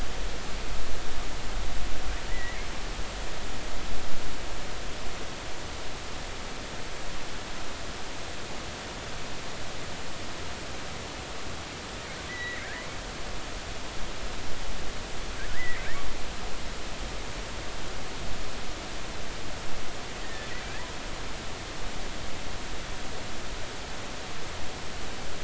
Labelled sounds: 2.3	2.7	killer whale, offshore, 1.8 to 2.3 kHz
12.3	12.9	killer whale, offshore, 1.5 to 2.2 kHz
15.5	15.8	killer whale, offshore, 1.6 to 2.1 kHz
20.2	20.5	killer whale, offshore, 1.7 to 2.0 kHz

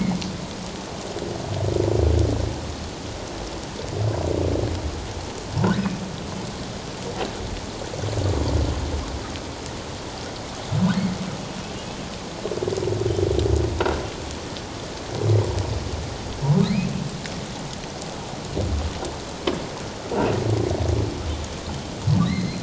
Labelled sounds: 22.2	22.6	humpback whale, 1.8 to 4.3 kHz

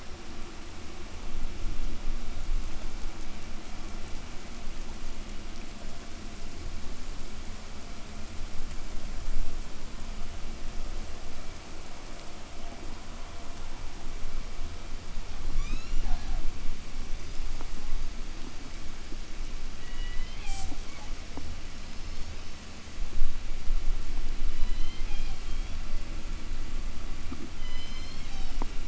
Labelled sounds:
15.2	16.6	killer whale, southern resident, 0.51 to 8.0 kHz
19.7	22.9	killer whale, southern resident, 0.24 to 8.0 kHz
24.0	26.0	killer whale, southern resident, 0 to 8.0 kHz
27.3	28.7	killer whale, southern resident, 0.67 to 8.0 kHz

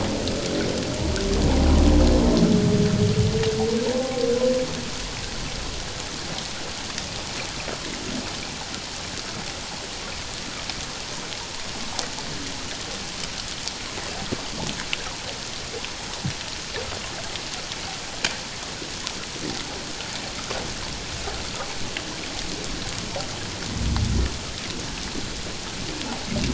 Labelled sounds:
3.9	4.2	humpback whale, 1.0 to 1.1 kHz

